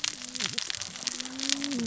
{"label": "biophony, cascading saw", "recorder": "SoundTrap 600 or HydroMoth"}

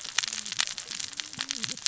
{"label": "biophony, cascading saw", "recorder": "SoundTrap 600 or HydroMoth"}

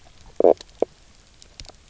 {"label": "biophony, knock croak", "recorder": "SoundTrap 300"}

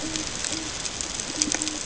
{"label": "ambient", "recorder": "HydroMoth"}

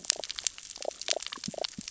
{"label": "biophony, damselfish", "recorder": "SoundTrap 600 or HydroMoth"}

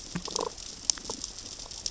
{"label": "biophony, damselfish", "recorder": "SoundTrap 600 or HydroMoth"}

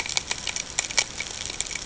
{"label": "ambient", "recorder": "HydroMoth"}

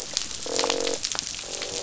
{"label": "biophony, croak", "recorder": "SoundTrap 500"}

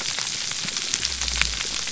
{"label": "biophony", "recorder": "SoundTrap 300"}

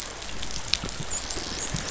{"label": "biophony, dolphin", "recorder": "SoundTrap 500"}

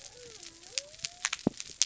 {"label": "biophony", "recorder": "SoundTrap 300"}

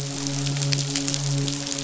{"label": "biophony, midshipman", "recorder": "SoundTrap 500"}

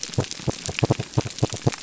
{"label": "biophony", "recorder": "SoundTrap 300"}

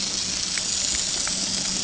{"label": "anthrophony, boat engine", "recorder": "HydroMoth"}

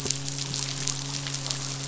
{"label": "biophony, midshipman", "recorder": "SoundTrap 500"}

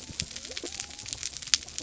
{"label": "biophony", "recorder": "SoundTrap 300"}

